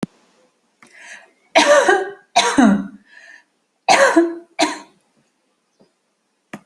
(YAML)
expert_labels:
- quality: good
  cough_type: dry
  dyspnea: false
  wheezing: false
  stridor: false
  choking: false
  congestion: false
  nothing: true
  diagnosis: healthy cough
  severity: pseudocough/healthy cough
age: 23
gender: female
respiratory_condition: false
fever_muscle_pain: false
status: healthy